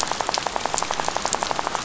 {"label": "biophony, rattle", "recorder": "SoundTrap 500"}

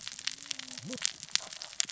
{"label": "biophony, cascading saw", "recorder": "SoundTrap 600 or HydroMoth"}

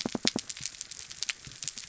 {"label": "biophony", "recorder": "SoundTrap 300"}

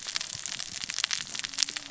{"label": "biophony, cascading saw", "recorder": "SoundTrap 600 or HydroMoth"}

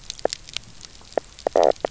{"label": "biophony, knock croak", "recorder": "SoundTrap 300"}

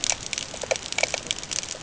{"label": "ambient", "recorder": "HydroMoth"}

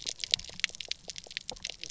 {"label": "biophony, pulse", "recorder": "SoundTrap 300"}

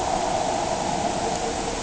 {"label": "anthrophony, boat engine", "recorder": "HydroMoth"}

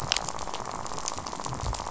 {"label": "biophony, rattle", "recorder": "SoundTrap 500"}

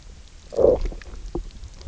{"label": "biophony, low growl", "recorder": "SoundTrap 300"}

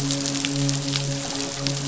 {"label": "biophony, midshipman", "recorder": "SoundTrap 500"}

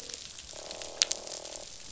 {"label": "biophony, croak", "recorder": "SoundTrap 500"}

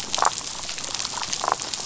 {"label": "biophony, damselfish", "recorder": "SoundTrap 500"}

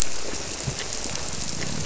{"label": "biophony", "recorder": "SoundTrap 300"}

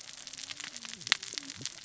{"label": "biophony, cascading saw", "recorder": "SoundTrap 600 or HydroMoth"}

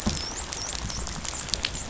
{"label": "biophony, dolphin", "recorder": "SoundTrap 500"}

